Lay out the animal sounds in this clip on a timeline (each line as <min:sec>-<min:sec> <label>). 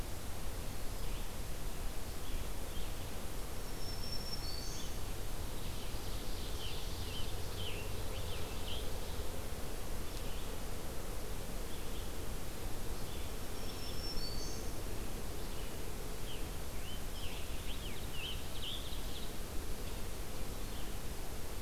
0:00.0-0:21.0 Red-eyed Vireo (Vireo olivaceus)
0:03.5-0:05.2 Black-throated Green Warbler (Setophaga virens)
0:05.2-0:07.6 Ovenbird (Seiurus aurocapilla)
0:06.5-0:08.9 Scarlet Tanager (Piranga olivacea)
0:13.3-0:14.9 Black-throated Green Warbler (Setophaga virens)
0:16.1-0:18.9 Scarlet Tanager (Piranga olivacea)
0:17.2-0:19.2 Ovenbird (Seiurus aurocapilla)